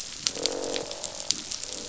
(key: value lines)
label: biophony, croak
recorder: SoundTrap 500